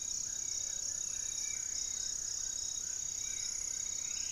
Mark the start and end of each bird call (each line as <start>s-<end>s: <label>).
0.0s-1.2s: Gray-fronted Dove (Leptotila rufaxilla)
0.0s-4.3s: Amazonian Trogon (Trogon ramonianus)
0.0s-4.3s: Hauxwell's Thrush (Turdus hauxwelli)
0.3s-2.6s: Plain-winged Antshrike (Thamnophilus schistaceus)
1.1s-4.3s: Spot-winged Antshrike (Pygiptila stellaris)
2.9s-4.3s: Striped Woodcreeper (Xiphorhynchus obsoletus)